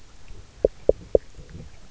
{"label": "biophony, knock", "recorder": "SoundTrap 300"}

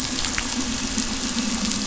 {"label": "anthrophony, boat engine", "recorder": "SoundTrap 500"}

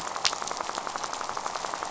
{"label": "biophony, rattle", "recorder": "SoundTrap 500"}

